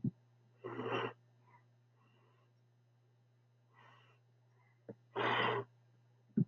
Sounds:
Sniff